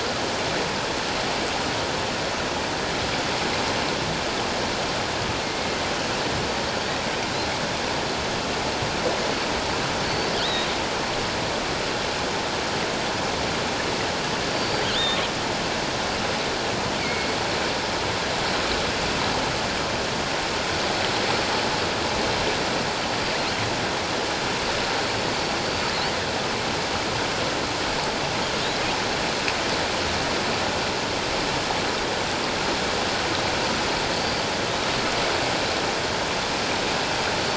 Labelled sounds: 5.4	5.7	killer whale, offshore, 2.1 to 2.2 kHz
10.0	10.7	killer whale, offshore, 3.0 to 4.6 kHz
14.5	15.2	killer whale, offshore, 2.8 to 4.7 kHz
17.0	17.4	killer whale, offshore, 2.1 to 2.4 kHz
23.1	23.3	killer whale, offshore, 4.7 to 4.8 kHz
25.6	25.9	killer whale, offshore, 4.6 to 4.7 kHz
28.5	28.8	killer whale, offshore, 6.5 to 6.9 kHz
34.1	34.5	killer whale, offshore, 4.5 to 4.8 kHz

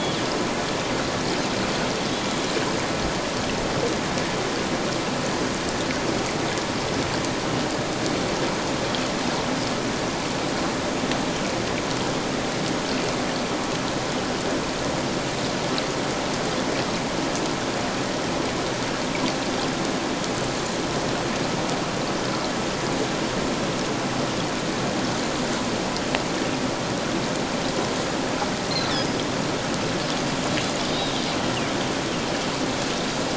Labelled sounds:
30.9	31.1	Pacific white-sided dolphin, 3.6 to 3.9 kHz

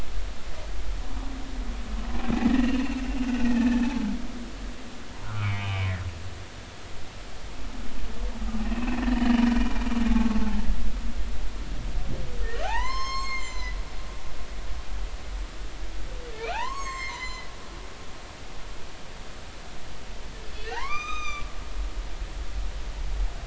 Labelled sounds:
2.5	2.8	humpback whale, 1.7 to 3.0 kHz
3.4	3.8	humpback whale, 1.7 to 2.0 kHz
5.2	6.0	humpback whale, 0.93 to 3.1 kHz
8.7	9.8	humpback whale, 1.7 to 2.8 kHz
10.1	10.4	humpback whale, 1.1 to 1.2 kHz
12.6	13.8	humpback whale, 0.80 to 7.6 kHz
16.3	17.5	humpback whale, 0.80 to 7.8 kHz
18.1	18.4	humpback whale, 0.90 to 1.1 kHz
20.5	21.5	humpback whale, 0.80 to 6.3 kHz

